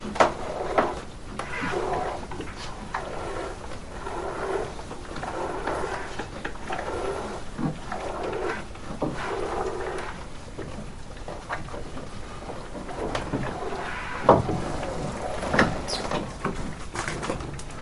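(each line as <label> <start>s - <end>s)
A cow is being milked on a farm. 0.0s - 17.8s
A pump operating periodically on a farm. 0.0s - 17.8s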